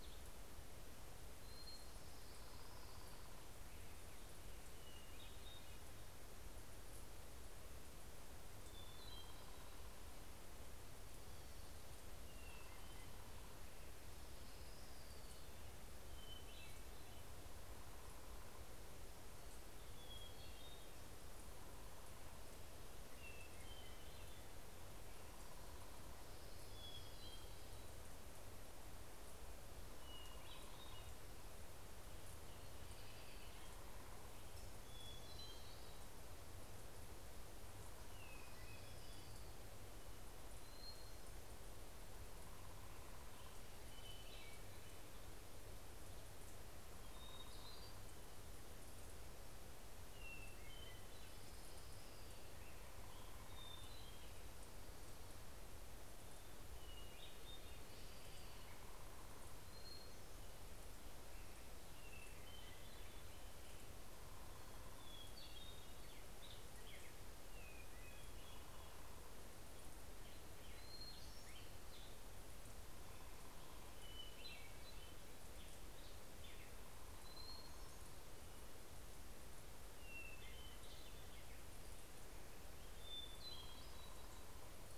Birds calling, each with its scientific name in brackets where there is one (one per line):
American Robin (Turdus migratorius)
Hermit Thrush (Catharus guttatus)
Hermit Warbler (Setophaga occidentalis)
Orange-crowned Warbler (Leiothlypis celata)
Black-headed Grosbeak (Pheucticus melanocephalus)